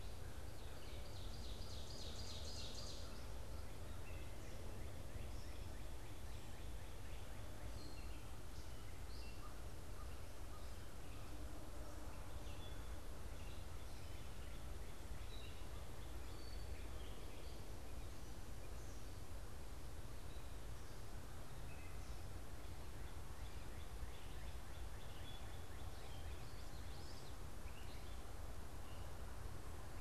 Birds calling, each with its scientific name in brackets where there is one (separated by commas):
Ovenbird (Seiurus aurocapilla), Gray Catbird (Dumetella carolinensis), Common Yellowthroat (Geothlypis trichas)